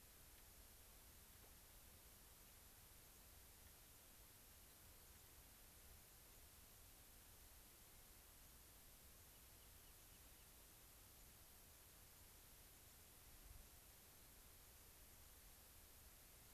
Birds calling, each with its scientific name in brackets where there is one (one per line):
Rock Wren (Salpinctes obsoletus)